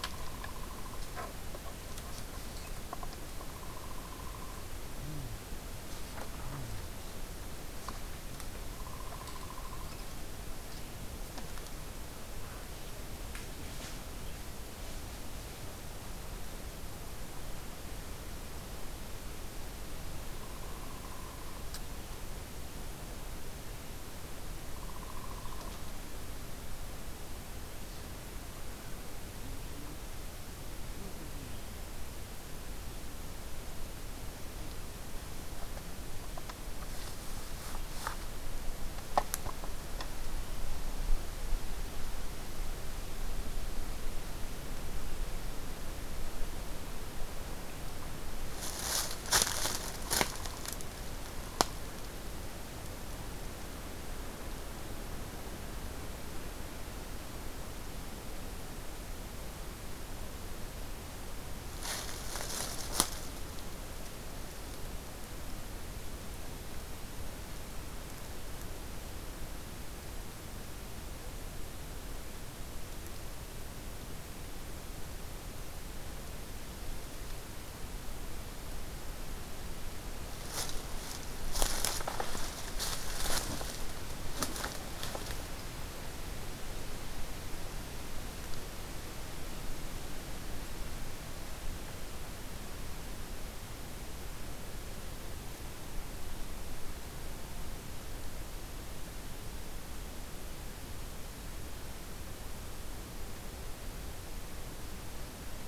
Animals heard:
forest ambience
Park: Katahdin Woods and Waters National Monument